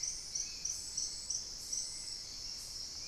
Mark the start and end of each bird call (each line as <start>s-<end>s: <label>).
0.0s-3.1s: Hauxwell's Thrush (Turdus hauxwelli)
0.0s-3.1s: Spot-winged Antshrike (Pygiptila stellaris)